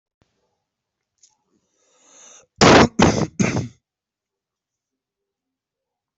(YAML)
expert_labels:
- quality: poor
  cough_type: unknown
  dyspnea: false
  wheezing: false
  stridor: false
  choking: false
  congestion: false
  nothing: true
  diagnosis: healthy cough
  severity: pseudocough/healthy cough
age: 20
gender: female
respiratory_condition: false
fever_muscle_pain: false
status: healthy